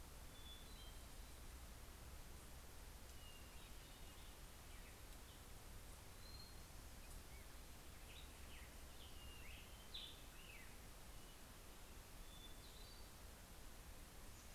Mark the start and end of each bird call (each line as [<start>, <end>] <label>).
[0.00, 1.80] Hermit Thrush (Catharus guttatus)
[3.00, 4.80] Hermit Thrush (Catharus guttatus)
[6.10, 7.00] Hermit Thrush (Catharus guttatus)
[7.50, 11.00] Black-headed Grosbeak (Pheucticus melanocephalus)
[11.70, 13.60] Hermit Thrush (Catharus guttatus)